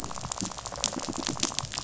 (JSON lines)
{"label": "biophony, rattle", "recorder": "SoundTrap 500"}